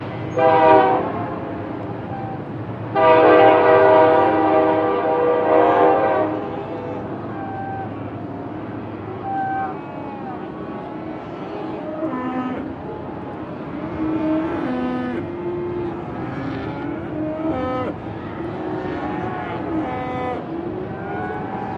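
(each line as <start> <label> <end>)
0.0 A cow moos. 0.3
0.3 A train siren sounds. 1.2
1.2 Cows mooing. 2.9
2.9 A train siren sounds, drawn out. 6.6
6.5 Cows mooing. 21.8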